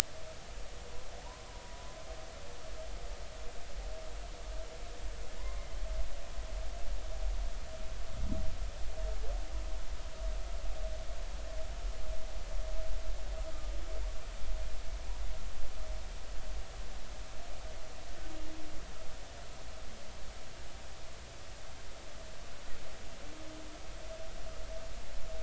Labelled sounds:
1.2	1.9	humpback whale, 0.86 to 1.1 kHz
5.4	5.7	humpback whale, 0.93 to 1.1 kHz

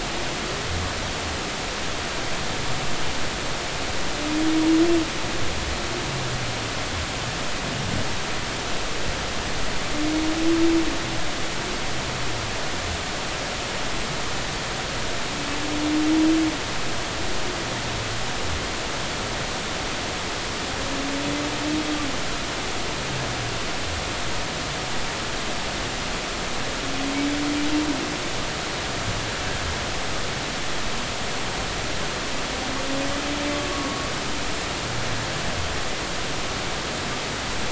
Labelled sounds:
33.7	34.1	humpback whale, 1.1 to 1.2 kHz

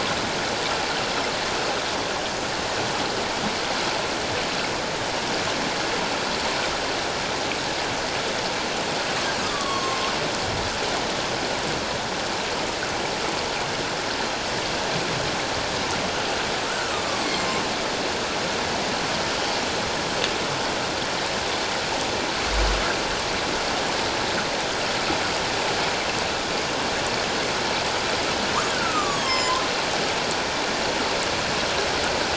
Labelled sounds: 9.4	10.1	killer whale, northern resident, A clan, AA subclan, A04 pod, call N04, 1.0 to 3.4 kHz
16.7	17.6	killer whale, northern resident, A clan, AA subclan, A04 pod, call N04, 1.2 to 7.6 kHz
28.7	29.6	killer whale, northern resident, A clan, AA subclan, A04 pod, call N04, 0.94 to 7.4 kHz

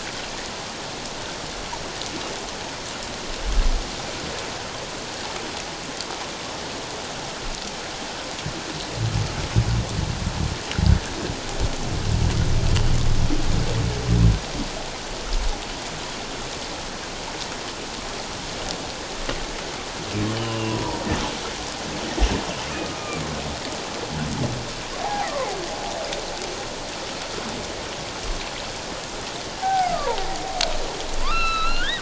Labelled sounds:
20.3	21.0	humpback whale, 0.91 to 3.1 kHz
22.7	23.2	humpback whale, 1.2 to 2.5 kHz
25.0	25.3	humpback whale, 0.78 to 1.1 kHz
29.6	30.1	humpback whale, 0.78 to 1.7 kHz
31.2	31.9	humpback whale, 0.97 to 5.5 kHz

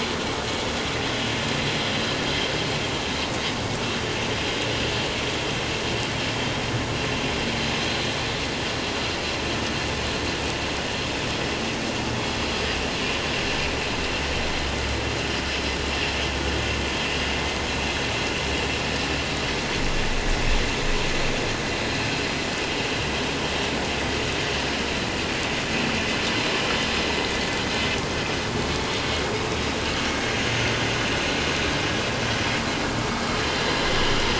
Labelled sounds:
28.5	28.9	vessel noise, 2.16 to 2.22 kHz

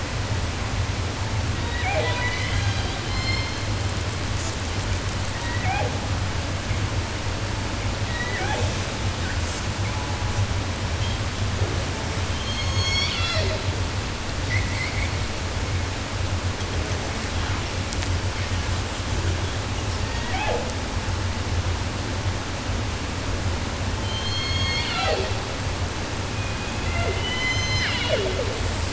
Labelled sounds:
1.5	3.8	killer whale, southern resident, J pod, call S01, 0.10 to 8.0 kHz
4.3	4.5	killer whale, 3.3 to 8.0 kHz
5.2	6.0	killer whale, southern resident, J pod, call S01, 0.26 to 3.6 kHz
8.0	9.0	killer whale, southern resident, J pod, call S01, 0.19 to 6.2 kHz
9.4	10.5	killer whale, 0.38 to 8.0 kHz
12.1	13.9	killer whale, southern resident, J pod, call S01, 0.10 to 8.0 kHz
14.2	15.3	killer whale, southern resident, 0.10 to 6.6 kHz
19.9	20.8	killer whale, southern resident, J pod, call S01, 0.10 to 8.0 kHz
24.0	25.6	killer whale, southern resident, J pod, call S01, 0.10 to 8.0 kHz
26.3	28.6	killer whale, southern resident, J pod, call S01, 0.10 to 7.9 kHz

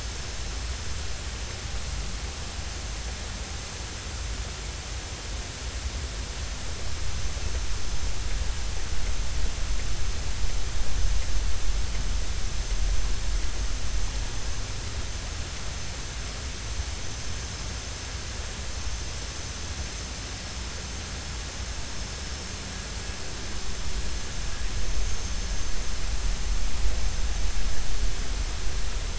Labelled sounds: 25.1	25.4	vessel noise, 6.2 to 6.5 kHz

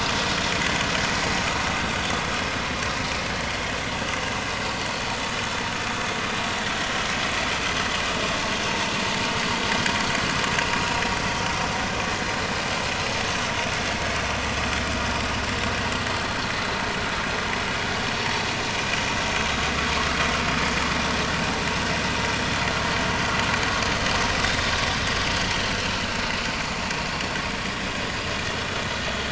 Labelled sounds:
2.3	2.5	vessel noise, 5.2 to 5.4 kHz

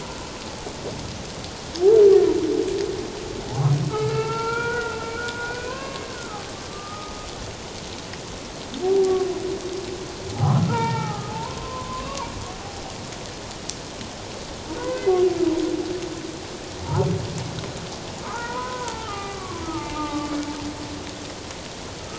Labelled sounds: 3.9	7.2	humpback whale, 0.84 to 4.7 kHz
8.8	9.2	humpback whale, 0.78 to 0.81 kHz
10.3	12.3	humpback whale, 0.78 to 2.4 kHz
14.8	15.1	humpback whale, 1.4 to 1.7 kHz
18.2	20.4	humpback whale, 0.78 to 2.4 kHz

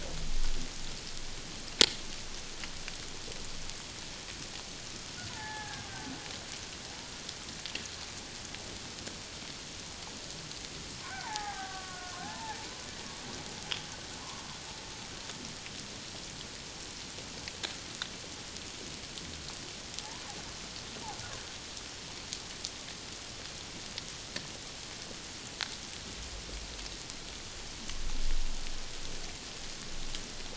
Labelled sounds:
5.3	5.9	killer whale, Bigg's (transient), 0.78 to 1.8 kHz
11.0	12.6	killer whale, Bigg's (transient), 0.78 to 1.9 kHz

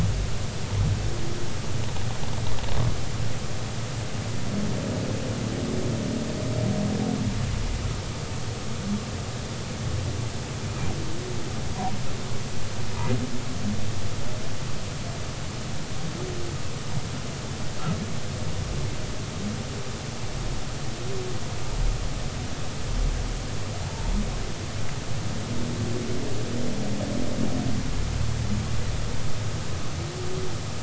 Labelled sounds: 23.8	24.1	humpback whale, 0.80 to 0.96 kHz

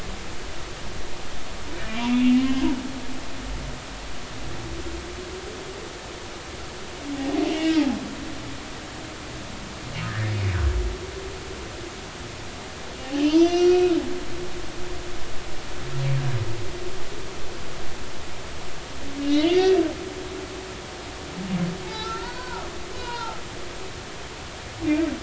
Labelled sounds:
1.8	2.7	humpback whale, 0.99 to 3.0 kHz
7.1	7.7	humpback whale, 0.80 to 3.0 kHz
10.1	10.3	humpback whale, 1.5 to 1.9 kHz
13.0	14.0	humpback whale, 0.80 to 6.1 kHz
19.2	19.7	humpback whale, 2.0 to 3.2 kHz
21.8	22.7	humpback whale, 0.83 to 4.6 kHz
23.0	23.4	humpback whale, 0.80 to 4.4 kHz

